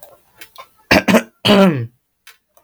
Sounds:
Throat clearing